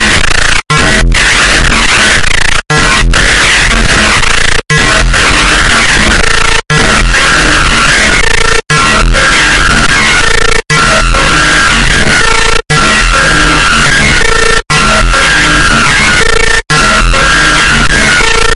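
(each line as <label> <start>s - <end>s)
An unusual noise. 0.0s - 18.5s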